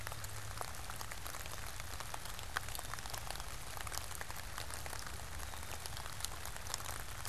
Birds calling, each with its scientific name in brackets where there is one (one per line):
Black-capped Chickadee (Poecile atricapillus)